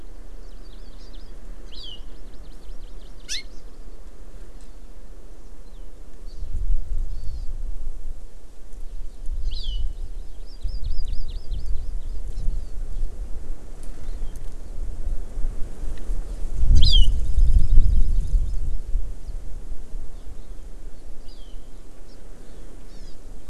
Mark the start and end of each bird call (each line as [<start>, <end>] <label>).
[0.40, 1.30] Hawaii Amakihi (Chlorodrepanis virens)
[1.60, 3.60] Hawaii Amakihi (Chlorodrepanis virens)
[6.20, 6.40] Hawaii Amakihi (Chlorodrepanis virens)
[7.10, 7.50] Hawaii Amakihi (Chlorodrepanis virens)
[8.80, 12.70] Hawaii Amakihi (Chlorodrepanis virens)
[14.00, 14.40] Hawaii Amakihi (Chlorodrepanis virens)
[16.70, 18.80] Hawaii Amakihi (Chlorodrepanis virens)
[21.20, 21.50] Hawaii Amakihi (Chlorodrepanis virens)
[22.10, 22.20] Hawaii Amakihi (Chlorodrepanis virens)
[22.90, 23.20] Hawaii Amakihi (Chlorodrepanis virens)